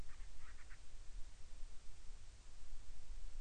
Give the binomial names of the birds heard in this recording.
Hydrobates castro